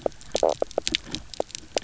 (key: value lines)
label: biophony, knock croak
recorder: SoundTrap 300